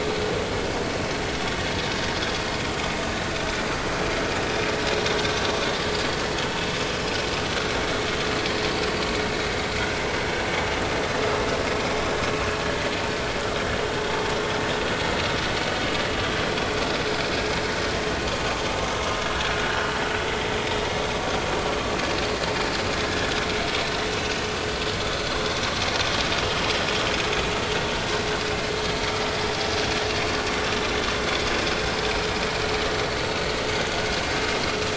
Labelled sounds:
20.2	20.6	vessel noise, 1.9 to 2.1 kHz
25.1	25.5	vessel noise, 4.1 to 4.3 kHz

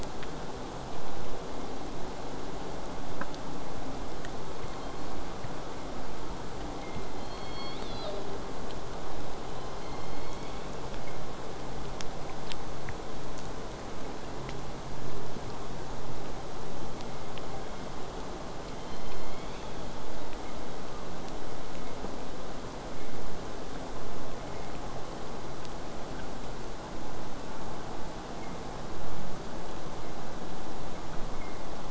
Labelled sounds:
4.7	5.3	killer whale, southern resident, J pod, 3.1 to 4.5 kHz
7.2	8.4	killer whale, southern resident, J pod, call S01, 0.19 to 5.7 kHz
9.5	11.0	killer whale, southern resident, J pod, 1.9 to 7.0 kHz
18.7	20.0	killer whale, southern resident, J pod, call S01, 1.8 to 6.4 kHz

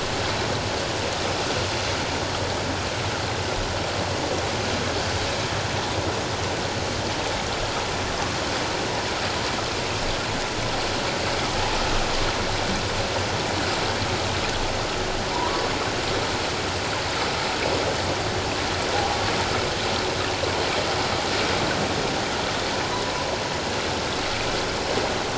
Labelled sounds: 15.3	15.6	humpback whale, 0.84 to 1.3 kHz
18.9	19.2	humpback whale, 0.78 to 0.97 kHz

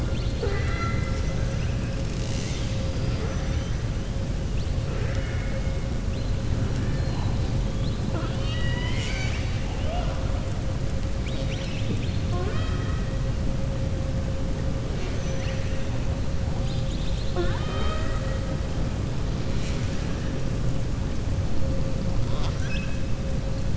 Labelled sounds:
0.0	1.3	killer whale, southern resident, 0.46 to 5.9 kHz
4.9	5.6	killer whale, southern resident, 1.3 to 2.9 kHz
6.9	7.5	killer whale, southern resident, 3.5 to 5.0 kHz
8.0	10.2	killer whale, southern resident, 0.58 to 7.6 kHz
11.1	12.2	killer whale, southern resident, 2.2 to 5.8 kHz
14.9	15.8	killer whale, southern resident, 1.7 to 6.4 kHz
22.2	23.0	killer whale, southern resident, 0.68 to 6.5 kHz

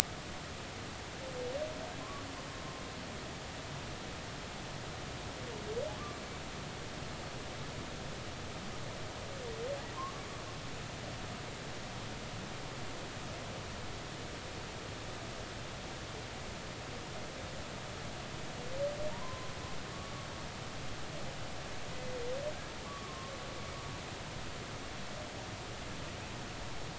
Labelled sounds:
3.0	3.2	humpback whale, 0.99 to 1.2 kHz
19.1	19.5	humpback whale, 0.86 to 1.1 kHz
22.9	23.3	humpback whale, 1.0 to 1.2 kHz

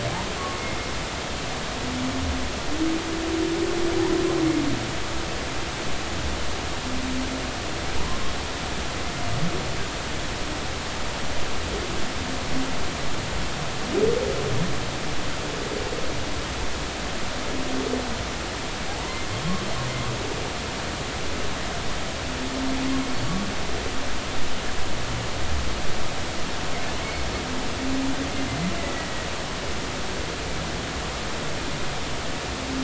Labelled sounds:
28.8	29.1	humpback whale, 1.9 to 2.0 kHz

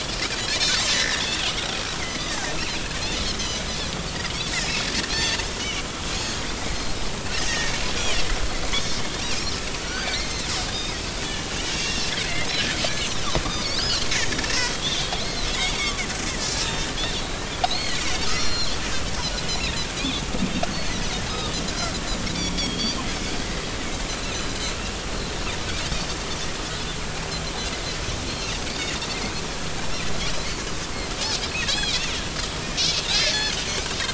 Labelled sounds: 0.9	1.4	Pacific white-sided dolphin, 1.7 to 3.7 kHz
2.0	2.8	Pacific white-sided dolphin, 1.9 to 6.3 kHz
3.2	3.7	Pacific white-sided dolphin, 2.8 to 6.3 kHz
5.1	5.8	Pacific white-sided dolphin, 1.7 to 4.5 kHz
6.1	7.0	Pacific white-sided dolphin, 4.0 to 6.9 kHz
7.5	7.7	Pacific white-sided dolphin, 1.7 to 2.0 kHz
8.7	9.0	Pacific white-sided dolphin, 3.3 to 3.8 kHz
9.3	11.0	Pacific white-sided dolphin, 1.2 to 5.7 kHz
11.2	12.1	Pacific white-sided dolphin, 2.7 to 6.6 kHz
12.9	14.1	Pacific white-sided dolphin, 2.8 to 6.4 kHz
14.5	15.9	Pacific white-sided dolphin, 1.9 to 4.8 kHz
16.4	17.3	Pacific white-sided dolphin, 3.0 to 6.1 kHz
17.6	18.0	Pacific white-sided dolphin, 3.7 to 6.6 kHz
18.2	19.8	Pacific white-sided dolphin, 2.7 to 7.1 kHz
20.7	21.0	Pacific white-sided dolphin, 4.1 to 4.5 kHz
22.4	23.0	Pacific white-sided dolphin, 3.2 to 5.9 kHz
24.1	24.6	Pacific white-sided dolphin, 3.9 to 4.2 kHz
30.2	30.5	Pacific white-sided dolphin, 5.3 to 6.1 kHz
31.7	32.0	Pacific white-sided dolphin, 3.1 to 5.2 kHz
33.1	34.1	Pacific white-sided dolphin, 1.4 to 3.9 kHz

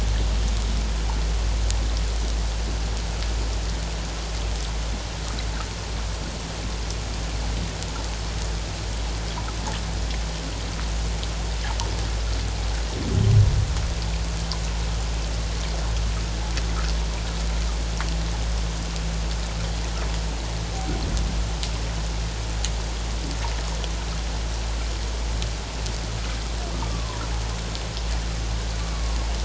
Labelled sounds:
26.7	27.2	humpback whale, 0.94 to 1.2 kHz
28.9	29.2	humpback whale, 0.91 to 1.2 kHz

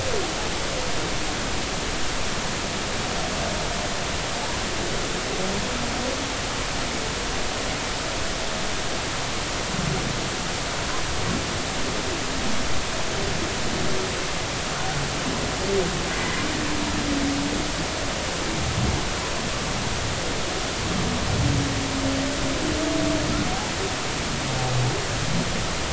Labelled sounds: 16.1	16.4	humpback whale, 1.9 to 2.1 kHz

